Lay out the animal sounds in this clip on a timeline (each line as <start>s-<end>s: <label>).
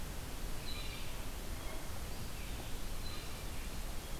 0.6s-1.1s: Blue Jay (Cyanocitta cristata)
3.0s-3.4s: Blue Jay (Cyanocitta cristata)